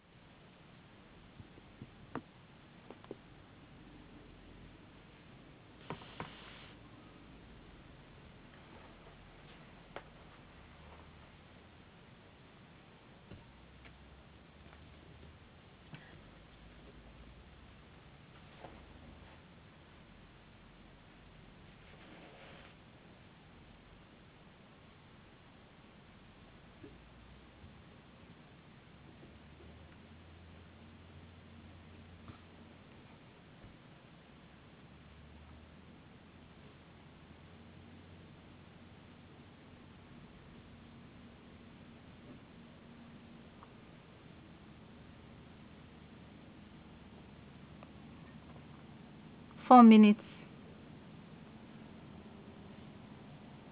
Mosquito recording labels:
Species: no mosquito; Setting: insect culture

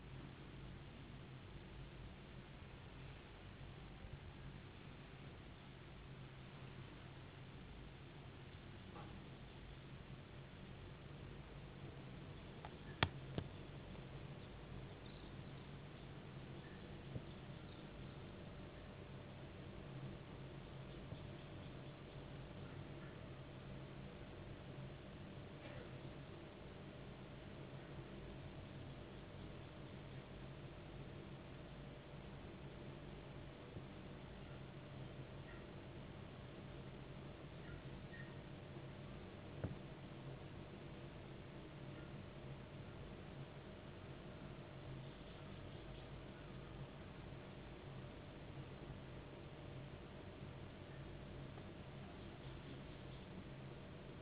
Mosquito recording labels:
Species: no mosquito; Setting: insect culture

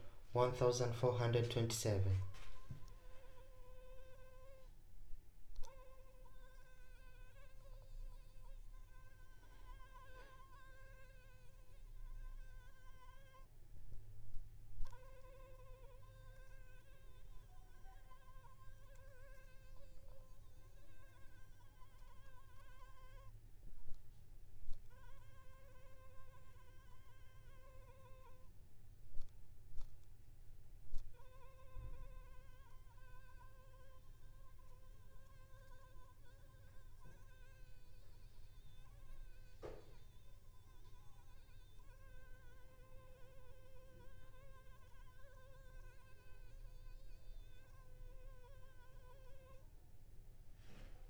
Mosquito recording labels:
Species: Anopheles arabiensis; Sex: female; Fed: blood-fed; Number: one; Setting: cup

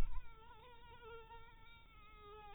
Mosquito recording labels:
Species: mosquito; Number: one; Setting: cup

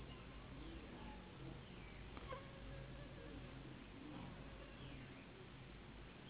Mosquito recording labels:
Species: Anopheles gambiae s.s.; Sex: female; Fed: unfed; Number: one; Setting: insect culture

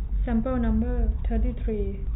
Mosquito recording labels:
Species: no mosquito; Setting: cup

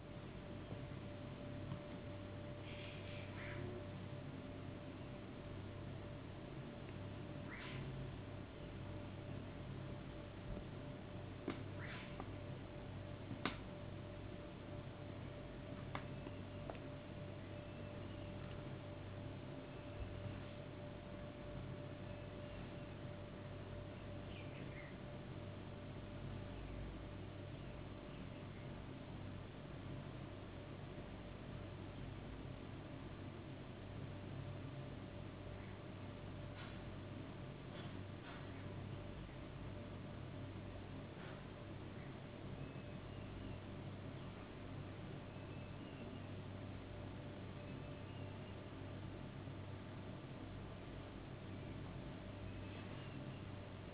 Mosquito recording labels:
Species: no mosquito; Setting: insect culture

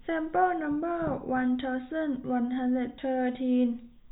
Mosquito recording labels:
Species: no mosquito; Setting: cup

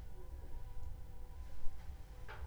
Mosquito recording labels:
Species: mosquito; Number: one; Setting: cup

